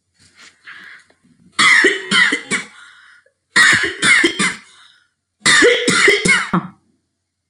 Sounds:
Cough